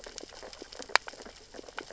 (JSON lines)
{"label": "biophony, sea urchins (Echinidae)", "recorder": "SoundTrap 600 or HydroMoth"}